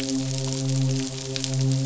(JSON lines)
{"label": "biophony, midshipman", "recorder": "SoundTrap 500"}